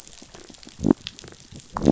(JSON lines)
{"label": "biophony", "recorder": "SoundTrap 500"}